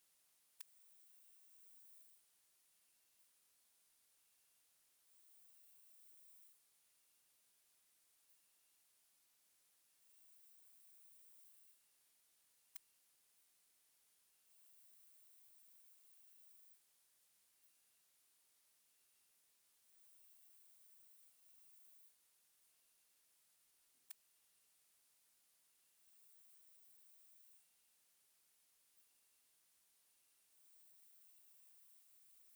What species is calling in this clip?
Poecilimon jonicus